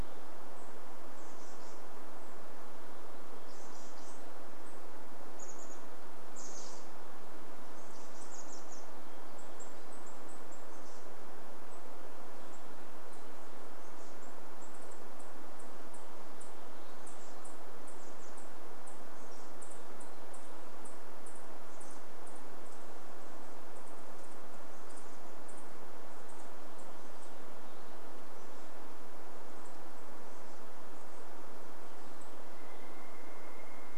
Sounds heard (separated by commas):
Chestnut-backed Chickadee call, Pileated Woodpecker call